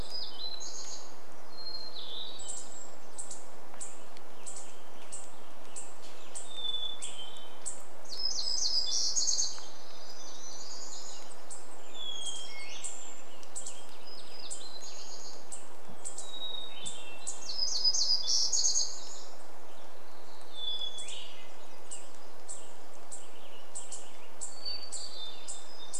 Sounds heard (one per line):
unidentified bird chip note
Western Tanager song
Black-headed Grosbeak song
Hermit Thrush song
warbler song